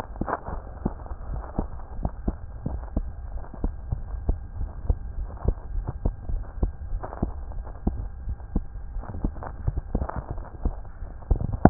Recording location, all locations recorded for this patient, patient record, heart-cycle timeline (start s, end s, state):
aortic valve (AV)
aortic valve (AV)+pulmonary valve (PV)+tricuspid valve (TV)+mitral valve (MV)
#Age: Child
#Sex: Female
#Height: nan
#Weight: nan
#Pregnancy status: False
#Murmur: Absent
#Murmur locations: nan
#Most audible location: nan
#Systolic murmur timing: nan
#Systolic murmur shape: nan
#Systolic murmur grading: nan
#Systolic murmur pitch: nan
#Systolic murmur quality: nan
#Diastolic murmur timing: nan
#Diastolic murmur shape: nan
#Diastolic murmur grading: nan
#Diastolic murmur pitch: nan
#Diastolic murmur quality: nan
#Outcome: Abnormal
#Campaign: 2015 screening campaign
0.00	4.52	unannotated
4.52	4.69	S1
4.69	4.85	systole
4.85	4.98	S2
4.98	5.14	diastole
5.14	5.28	S1
5.28	5.44	systole
5.44	5.58	S2
5.58	5.73	diastole
5.73	5.86	S1
5.86	6.01	systole
6.01	6.14	S2
6.14	6.29	diastole
6.29	6.42	S1
6.42	6.58	systole
6.58	6.74	S2
6.74	6.90	diastole
6.90	7.02	S1
7.02	7.19	systole
7.19	7.34	S2
7.34	7.54	diastole
7.54	7.68	S1
7.68	7.82	systole
7.82	7.95	S2
7.95	8.24	diastole
8.24	8.36	S1
8.36	8.52	systole
8.52	8.66	S2
8.66	8.92	diastole
8.92	9.04	S1
9.04	9.22	systole
9.22	9.34	S2
9.34	11.70	unannotated